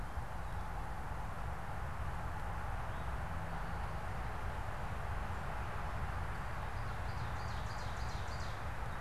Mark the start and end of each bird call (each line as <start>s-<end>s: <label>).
2.8s-3.3s: Eastern Towhee (Pipilo erythrophthalmus)
6.3s-8.8s: Ovenbird (Seiurus aurocapilla)